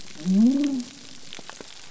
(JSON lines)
{"label": "biophony", "recorder": "SoundTrap 300"}